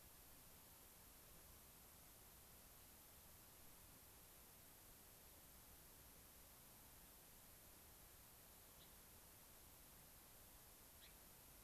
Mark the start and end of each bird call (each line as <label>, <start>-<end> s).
Gray-crowned Rosy-Finch (Leucosticte tephrocotis), 8.7-8.9 s
Gray-crowned Rosy-Finch (Leucosticte tephrocotis), 10.9-11.1 s